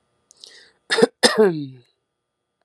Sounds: Throat clearing